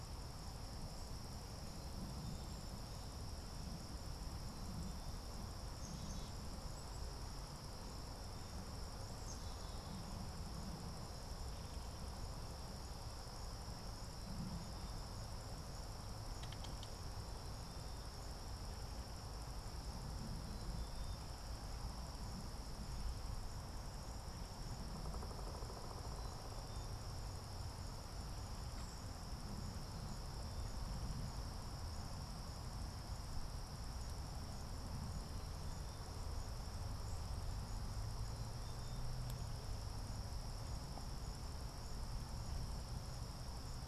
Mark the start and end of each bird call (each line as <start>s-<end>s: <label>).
5.5s-7.3s: Black-capped Chickadee (Poecile atricapillus)
8.7s-10.4s: Black-capped Chickadee (Poecile atricapillus)
24.3s-26.8s: Pileated Woodpecker (Dryocopus pileatus)